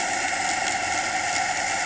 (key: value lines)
label: anthrophony, boat engine
recorder: HydroMoth